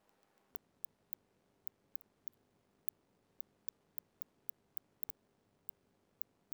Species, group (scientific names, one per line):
Cyrtaspis scutata
Orthoptera